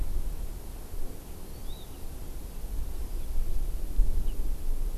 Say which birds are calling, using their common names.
Hawaii Amakihi